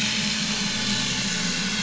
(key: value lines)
label: anthrophony, boat engine
recorder: SoundTrap 500